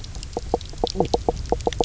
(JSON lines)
{"label": "biophony, knock croak", "recorder": "SoundTrap 300"}